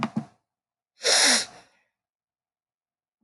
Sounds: Sniff